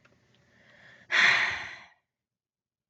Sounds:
Sigh